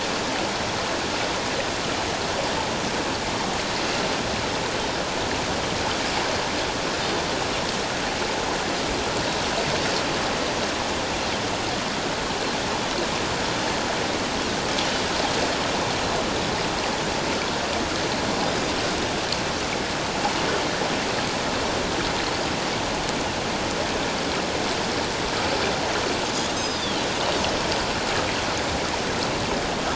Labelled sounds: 18.5	18.7	Pacific white-sided dolphin, 4.8 to 5.1 kHz
26.6	27.1	Pacific white-sided dolphin, 2.9 to 5.2 kHz

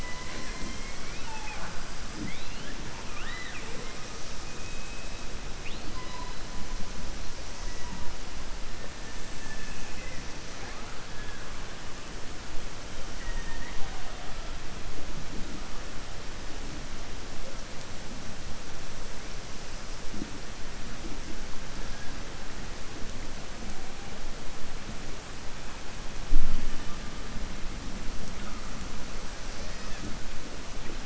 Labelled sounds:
3.0	4.0	killer whale, southern resident, 0.45 to 4.0 kHz
9.3	10.2	killer whale, southern resident, 1.7 to 3.5 kHz

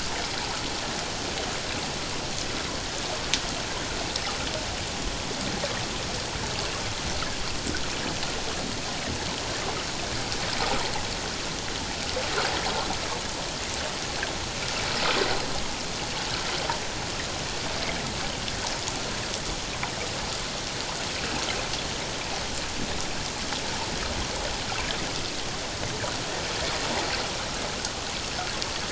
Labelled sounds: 26.8	27.1	water noise, 0.78 to 1.0 kHz

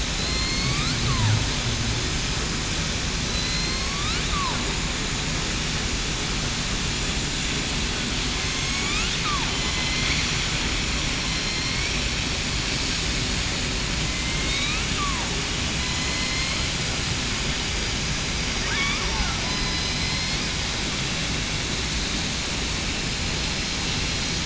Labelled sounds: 0.1	0.8	killer whale, southern resident, 3.9 to 4.7 kHz
3.2	4.0	killer whale, southern resident, 2.0 to 4.6 kHz
8.4	8.9	killer whale, southern resident, 6.3 to 6.9 kHz
9.6	10.1	killer whale, southern resident, 4.0 to 4.2 kHz
11.2	11.8	killer whale, southern resident, 4.1 to 4.3 kHz
14.0	14.8	killer whale, southern resident, 2.0 to 2.6 kHz
15.8	16.6	killer whale, southern resident, 2.0 to 2.2 kHz
19.4	19.8	killer whale, southern resident, 5.0 to 5.1 kHz

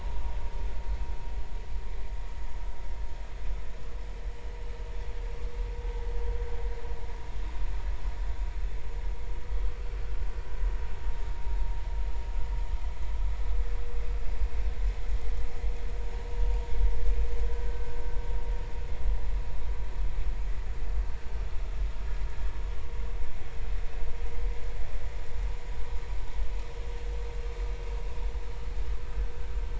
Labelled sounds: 28.5	28.7	vessel noise, 2.8 to 3.0 kHz

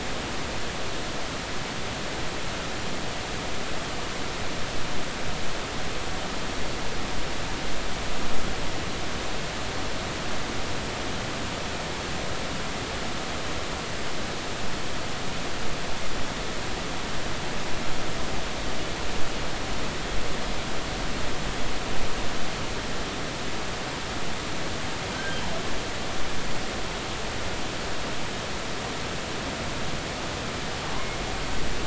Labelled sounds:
25.1	25.4	killer whale, northern resident, G clan, GG subclan, call N28, 1.5 to 1.6 kHz

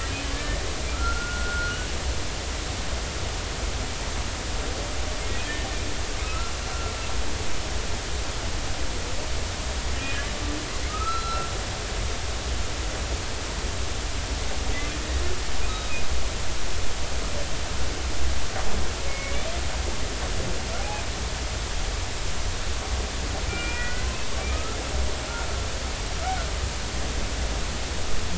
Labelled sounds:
0.1	0.6	humpback whale, 1.7 to 3.1 kHz
0.9	1.9	humpback whale, 1.3 to 1.5 kHz
6.2	6.5	humpback whale, 1.2 to 1.4 kHz
10.9	11.5	humpback whale, 1.2 to 4.1 kHz
19.1	19.4	humpback whale, 2.1 to 2.4 kHz
23.5	24.1	humpback whale, 1.3 to 2.5 kHz
24.4	24.8	humpback whale, 1.2 to 2.6 kHz

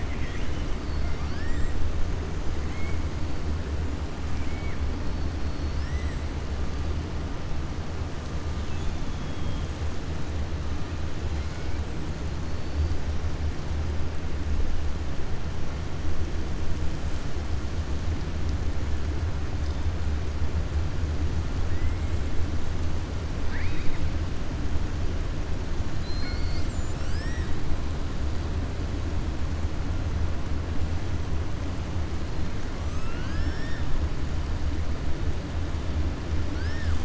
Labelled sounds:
1.0	1.7	killer whale, southern resident, 1.1 to 2.1 kHz
4.3	4.8	killer whale, southern resident, 1.7 to 3.2 kHz
9.1	9.6	killer whale, southern resident, 3.0 to 3.8 kHz
23.4	24.0	killer whale, southern resident, 1.0 to 4.8 kHz
32.8	33.8	killer whale, southern resident, 1.3 to 5.6 kHz
36.5	36.9	killer whale, southern resident, 1.2 to 1.9 kHz

